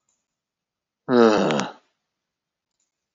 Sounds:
Sigh